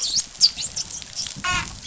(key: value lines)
label: biophony, dolphin
recorder: SoundTrap 500